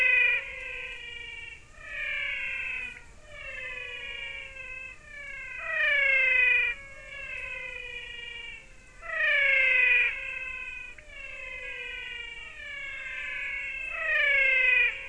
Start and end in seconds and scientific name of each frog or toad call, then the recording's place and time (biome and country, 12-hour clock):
0.0	15.0	Physalaemus albonotatus
2.8	3.0	Leptodactylus podicipinus
10.9	11.1	Leptodactylus podicipinus
Cerrado, Brazil, 5:45pm